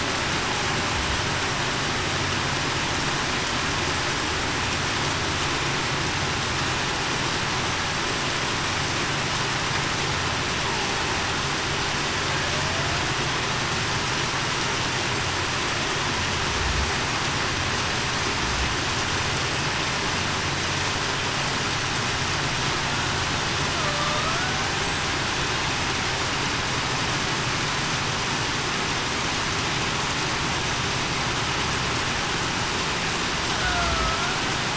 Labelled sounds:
33.6	34.3	killer whale, Bigg's (transient), 0.63 to 1.5 kHz

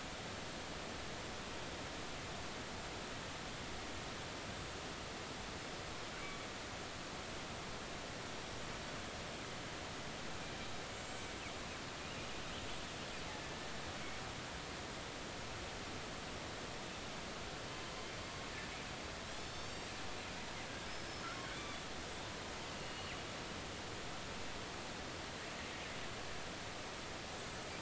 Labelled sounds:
10.9	11.3	killer whale, northern resident, G clan, 6.6 to 7.7 kHz
19.3	19.9	killer whale, northern resident, G clan, 3.2 to 7.5 kHz
21.5	21.8	killer whale, northern resident, G clan, 3.3 to 3.6 kHz
22.7	23.1	killer whale, northern resident, G clan, 2.7 to 4.4 kHz
27.3	27.6	killer whale, northern resident, G clan, 6.7 to 7.8 kHz

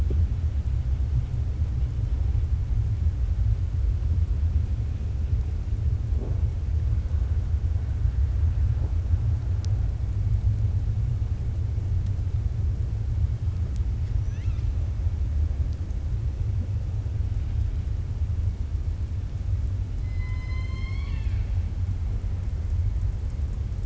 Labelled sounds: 14.0	14.7	killer whale, 1.3 to 6.7 kHz
20.0	21.6	killer whale, 0.99 to 6.4 kHz

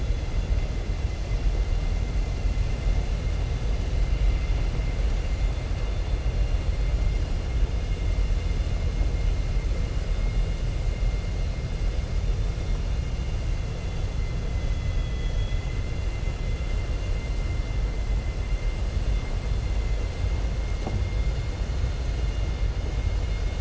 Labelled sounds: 14.5	15.7	vessel noise, 2.0 to 3.4 kHz

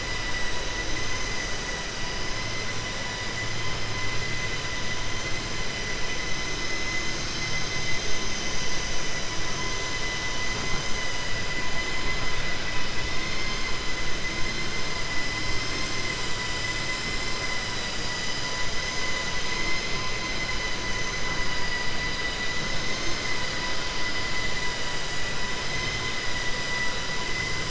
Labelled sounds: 13.2	13.6	vessel noise, 1.6 to 3.6 kHz
19.6	20.0	vessel noise, 2.0 to 4.4 kHz

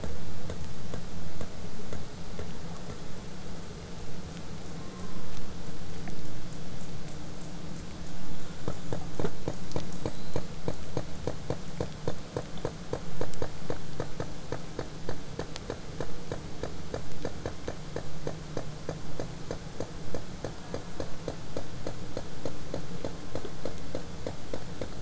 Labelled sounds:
4.7	5.3	killer whale, southern resident, 0.80 to 1.2 kHz
10.0	10.5	killer whale, southern resident, whistle, 3.5 to 7.7 kHz
15.0	20.0	vessel noise, 0 to 8.0 kHz
20.5	21.1	killer whale, southern resident, J pod, call S04, 0.05 to 1.9 kHz

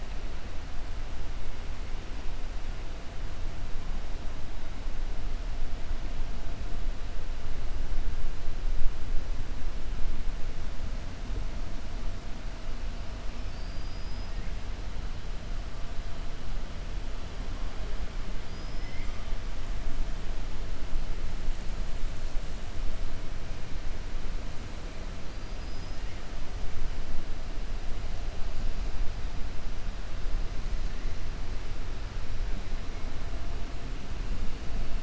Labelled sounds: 13.4	14.3	killer whale, 4.5 to 5.3 kHz
18.4	19.2	killer whale, 1.2 to 5.8 kHz

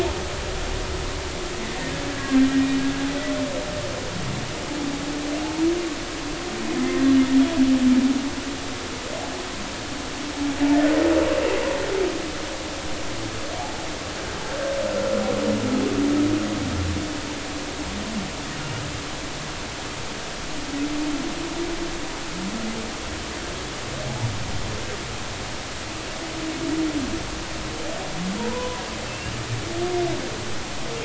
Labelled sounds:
2.1	2.5	humpback whale, 1.5 to 1.7 kHz
28.4	29.4	humpback whale, 0.90 to 2.9 kHz

